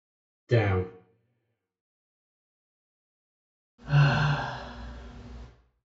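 At 0.51 seconds, a voice says "Down." After that, at 3.78 seconds, someone sighs.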